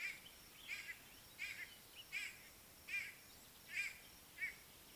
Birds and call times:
White-bellied Go-away-bird (Corythaixoides leucogaster): 1.5s

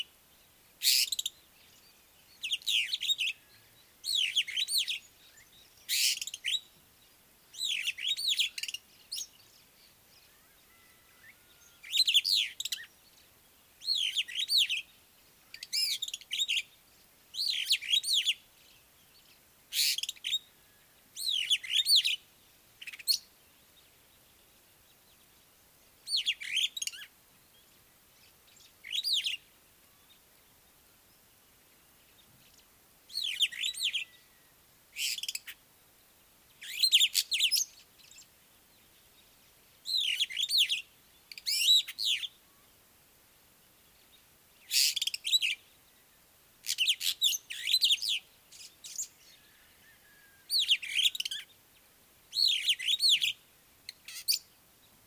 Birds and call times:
Superb Starling (Lamprotornis superbus): 2.9s, 12.2s, 21.7s, 33.6s, 41.7s, 52.7s

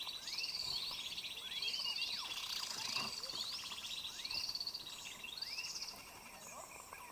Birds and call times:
Spectacled Weaver (Ploceus ocularis): 1.6s

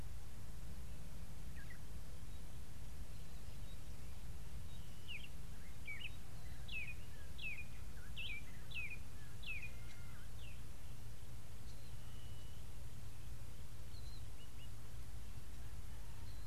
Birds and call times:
Spotted Morning-Thrush (Cichladusa guttata): 8.3s

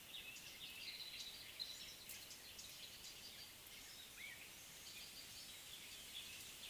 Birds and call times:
Gray Apalis (Apalis cinerea): 1.1s

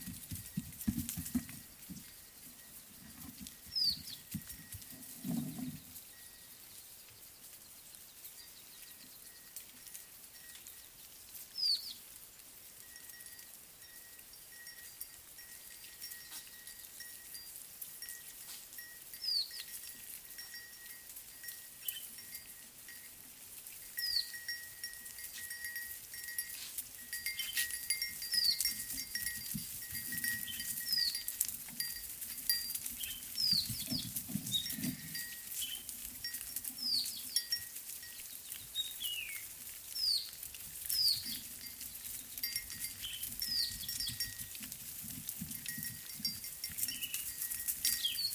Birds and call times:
Mocking Cliff-Chat (Thamnolaea cinnamomeiventris): 3.8s, 11.7s, 19.3s, 24.1s, 28.4s, 31.0s, 33.5s, 36.9s, 39.1s, 40.1s, 43.5s

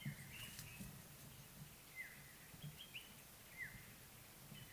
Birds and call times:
African Black-headed Oriole (Oriolus larvatus): 2.0s

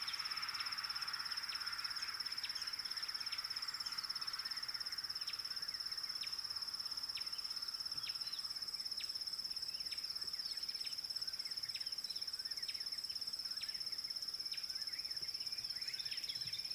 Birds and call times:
Gray Wren-Warbler (Calamonastes simplex): 6.2s, 12.7s

